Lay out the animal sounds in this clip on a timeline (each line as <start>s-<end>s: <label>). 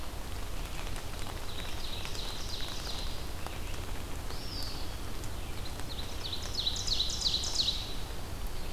1.2s-3.5s: Ovenbird (Seiurus aurocapilla)
4.2s-5.0s: Eastern Wood-Pewee (Contopus virens)
5.7s-8.0s: Ovenbird (Seiurus aurocapilla)